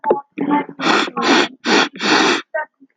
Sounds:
Sniff